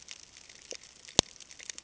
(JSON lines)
{"label": "ambient", "recorder": "HydroMoth"}